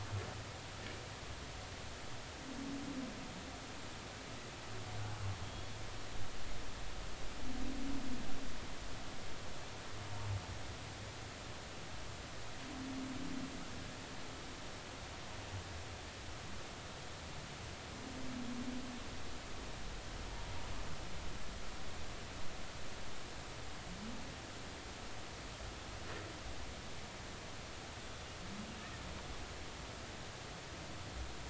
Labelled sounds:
5.4	5.8	humpback whale, 3.2 to 3.4 kHz

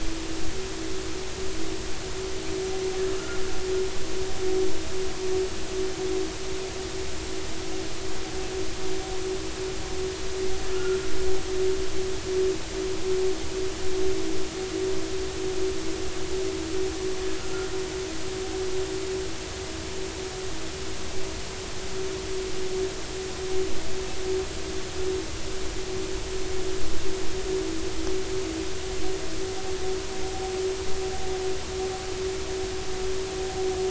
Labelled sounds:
10.7	11.0	killer whale, northern resident, 1.3 to 1.5 kHz
17.4	17.7	killer whale, northern resident, 1.3 to 1.5 kHz

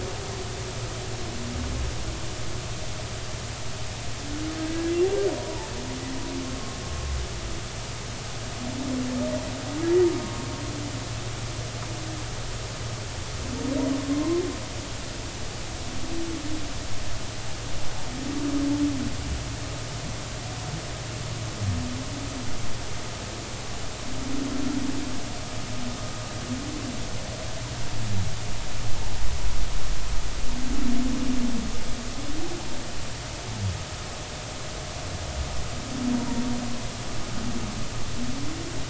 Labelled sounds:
5.3	5.7	humpback whale, 0.83 to 0.99 kHz
10.2	10.5	humpback whale, 1.06 to 1.12 kHz
14.1	14.4	humpback whale, 0.90 to 1.1 kHz

